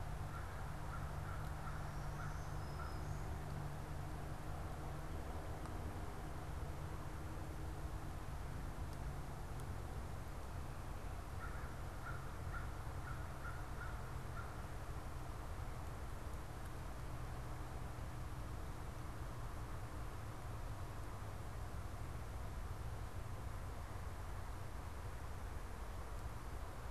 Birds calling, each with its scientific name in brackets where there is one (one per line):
Black-throated Green Warbler (Setophaga virens)
American Crow (Corvus brachyrhynchos)